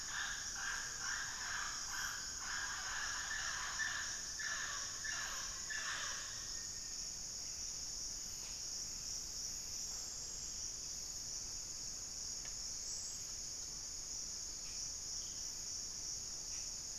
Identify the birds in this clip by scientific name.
Amazona farinosa, Formicarius analis, Myrmotherula brachyura